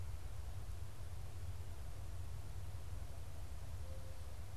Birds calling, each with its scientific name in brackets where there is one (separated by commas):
Mourning Dove (Zenaida macroura)